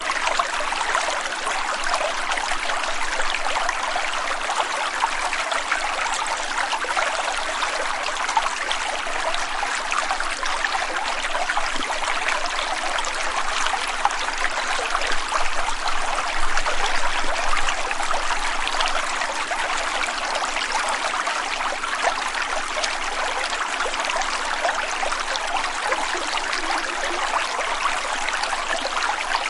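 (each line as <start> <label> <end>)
0.0 A loud, continuous stream of water. 29.5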